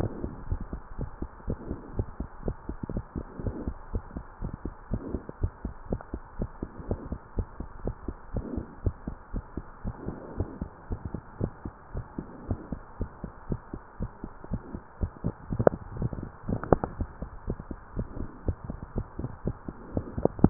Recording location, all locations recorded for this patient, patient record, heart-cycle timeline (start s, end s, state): tricuspid valve (TV)
aortic valve (AV)+pulmonary valve (PV)+tricuspid valve (TV)+mitral valve (MV)
#Age: Child
#Sex: Female
#Height: 104.0 cm
#Weight: 20.4 kg
#Pregnancy status: False
#Murmur: Absent
#Murmur locations: nan
#Most audible location: nan
#Systolic murmur timing: nan
#Systolic murmur shape: nan
#Systolic murmur grading: nan
#Systolic murmur pitch: nan
#Systolic murmur quality: nan
#Diastolic murmur timing: nan
#Diastolic murmur shape: nan
#Diastolic murmur grading: nan
#Diastolic murmur pitch: nan
#Diastolic murmur quality: nan
#Outcome: Abnormal
#Campaign: 2015 screening campaign
0.00	0.30	unannotated
0.30	0.44	diastole
0.44	0.58	S1
0.58	0.70	systole
0.70	0.80	S2
0.80	0.96	diastole
0.96	1.08	S1
1.08	1.18	systole
1.18	1.28	S2
1.28	1.44	diastole
1.44	1.58	S1
1.58	1.68	systole
1.68	1.78	S2
1.78	1.92	diastole
1.92	2.08	S1
2.08	2.16	systole
2.16	2.26	S2
2.26	2.42	diastole
2.42	2.56	S1
2.56	2.66	systole
2.66	2.76	S2
2.76	2.90	diastole
2.90	3.04	S1
3.04	3.16	systole
3.16	3.28	S2
3.28	3.44	diastole
3.44	3.55	S1
3.55	3.64	systole
3.64	3.76	S2
3.76	3.92	diastole
3.92	4.04	S1
4.04	4.16	systole
4.16	4.24	S2
4.24	4.40	diastole
4.40	4.52	S1
4.52	4.64	systole
4.64	4.74	S2
4.74	4.90	diastole
4.90	5.02	S1
5.02	5.12	systole
5.12	5.24	S2
5.24	5.40	diastole
5.40	5.52	S1
5.52	5.64	systole
5.64	5.74	S2
5.74	5.90	diastole
5.90	6.00	S1
6.00	6.12	systole
6.12	6.22	S2
6.22	6.38	diastole
6.38	6.50	S1
6.50	6.60	systole
6.60	6.72	S2
6.72	6.86	diastole
6.86	7.00	S1
7.00	7.10	systole
7.10	7.20	S2
7.20	7.36	diastole
7.36	7.48	S1
7.48	7.58	systole
7.58	7.68	S2
7.68	7.82	diastole
7.82	7.96	S1
7.96	8.04	systole
8.04	8.16	S2
8.16	8.32	diastole
8.32	8.42	S1
8.42	8.50	systole
8.50	8.64	S2
8.64	8.78	diastole
8.78	8.94	S1
8.94	9.06	systole
9.06	9.16	S2
9.16	9.32	diastole
9.32	9.44	S1
9.44	9.56	systole
9.56	9.66	S2
9.66	9.84	diastole
9.84	9.96	S1
9.96	10.08	systole
10.08	10.18	S2
10.18	10.36	diastole
10.36	10.48	S1
10.48	10.60	systole
10.60	10.70	S2
10.70	10.88	diastole
10.88	11.00	S1
11.00	11.12	systole
11.12	11.24	S2
11.24	11.40	diastole
11.40	11.52	S1
11.52	11.64	systole
11.64	11.72	S2
11.72	11.92	diastole
11.92	12.06	S1
12.06	12.18	systole
12.18	12.28	S2
12.28	12.44	diastole
12.44	12.58	S1
12.58	12.68	systole
12.68	12.80	S2
12.80	12.98	diastole
12.98	13.10	S1
13.10	13.22	systole
13.22	13.30	S2
13.30	13.48	diastole
13.48	13.60	S1
13.60	13.74	systole
13.74	13.82	S2
13.82	14.00	diastole
14.00	14.10	S1
14.10	14.24	systole
14.24	14.32	S2
14.32	14.50	diastole
14.50	14.62	S1
14.62	14.74	systole
14.74	14.82	S2
14.82	15.00	diastole
15.00	20.50	unannotated